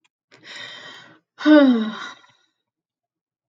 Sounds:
Sigh